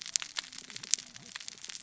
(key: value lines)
label: biophony, cascading saw
recorder: SoundTrap 600 or HydroMoth